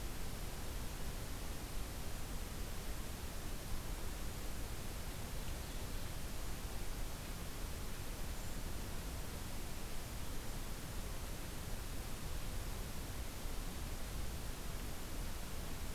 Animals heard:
forest ambience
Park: Acadia National Park